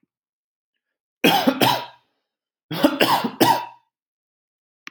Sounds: Cough